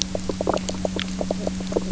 {"label": "biophony, knock croak", "recorder": "SoundTrap 300"}
{"label": "anthrophony, boat engine", "recorder": "SoundTrap 300"}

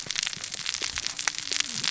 {"label": "biophony, cascading saw", "recorder": "SoundTrap 600 or HydroMoth"}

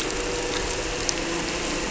{"label": "anthrophony, boat engine", "recorder": "SoundTrap 300"}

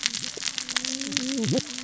{"label": "biophony, cascading saw", "recorder": "SoundTrap 600 or HydroMoth"}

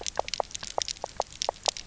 {"label": "biophony, knock croak", "recorder": "SoundTrap 300"}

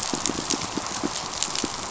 {"label": "biophony, pulse", "recorder": "SoundTrap 500"}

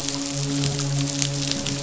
{"label": "biophony, midshipman", "recorder": "SoundTrap 500"}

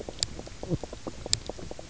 {"label": "biophony, knock croak", "recorder": "SoundTrap 300"}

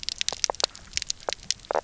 {"label": "biophony, knock croak", "recorder": "SoundTrap 300"}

